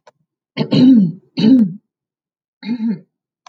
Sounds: Throat clearing